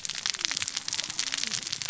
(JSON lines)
{"label": "biophony, cascading saw", "recorder": "SoundTrap 600 or HydroMoth"}